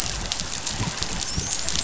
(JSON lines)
{"label": "biophony, dolphin", "recorder": "SoundTrap 500"}